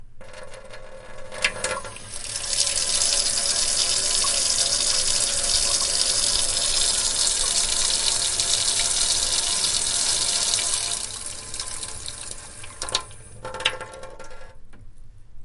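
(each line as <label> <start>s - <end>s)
Water drips into a sink from a slightly opened faucet. 0.0s - 2.5s
Water flows into a sink from a fully opened faucet. 2.5s - 11.1s
Water drips into a sink from a slightly opened faucet. 11.1s - 12.8s
Water droplets fall into a sink after the faucet closes. 12.8s - 15.4s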